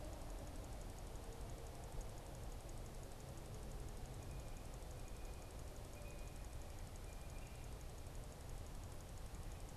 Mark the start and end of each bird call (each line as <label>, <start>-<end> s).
Blue Jay (Cyanocitta cristata), 3.8-7.8 s